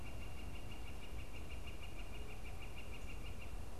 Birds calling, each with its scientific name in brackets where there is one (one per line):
Northern Flicker (Colaptes auratus)